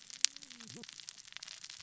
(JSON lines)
{"label": "biophony, cascading saw", "recorder": "SoundTrap 600 or HydroMoth"}